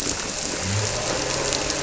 {"label": "anthrophony, boat engine", "recorder": "SoundTrap 300"}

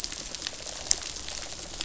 {"label": "biophony", "recorder": "SoundTrap 500"}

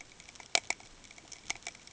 {"label": "ambient", "recorder": "HydroMoth"}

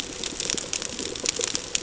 {"label": "ambient", "recorder": "HydroMoth"}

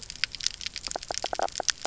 {"label": "biophony, knock croak", "recorder": "SoundTrap 300"}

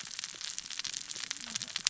{"label": "biophony, cascading saw", "recorder": "SoundTrap 600 or HydroMoth"}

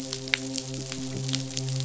{"label": "biophony, midshipman", "recorder": "SoundTrap 500"}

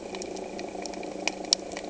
{"label": "anthrophony, boat engine", "recorder": "HydroMoth"}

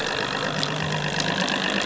{"label": "anthrophony, boat engine", "recorder": "SoundTrap 500"}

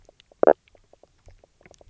{"label": "biophony, knock croak", "recorder": "SoundTrap 300"}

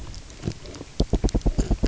{"label": "biophony, knock", "recorder": "SoundTrap 300"}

